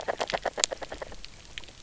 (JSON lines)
{"label": "biophony, knock croak", "recorder": "SoundTrap 300"}